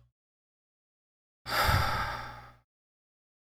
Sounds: Sigh